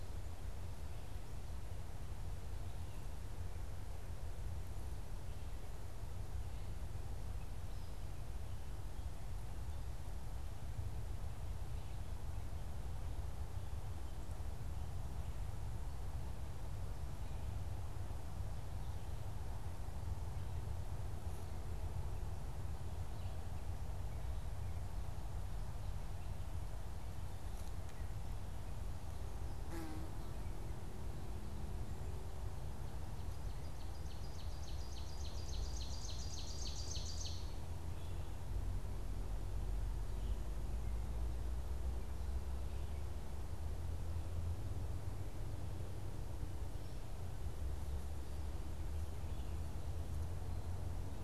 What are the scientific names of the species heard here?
Seiurus aurocapilla